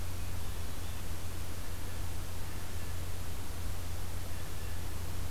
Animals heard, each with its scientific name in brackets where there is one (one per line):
Hermit Thrush (Catharus guttatus)
Blue Jay (Cyanocitta cristata)